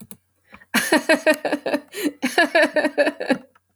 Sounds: Laughter